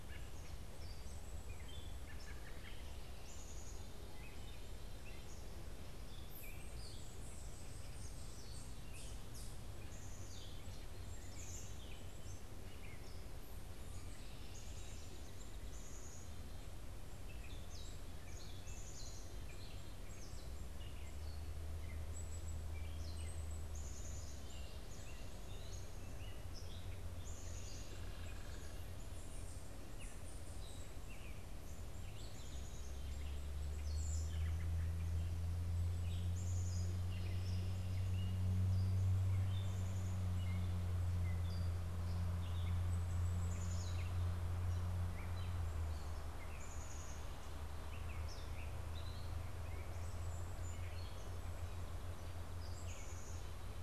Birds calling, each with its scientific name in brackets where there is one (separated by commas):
American Robin (Turdus migratorius), Black-capped Chickadee (Poecile atricapillus), Gray Catbird (Dumetella carolinensis)